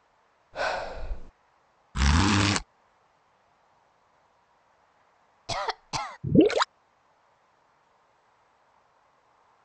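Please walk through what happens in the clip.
First, someone sighs. Then you can hear a zipper. After that, someone coughs. Finally, gurgling is audible. A faint, unchanging background noise remains.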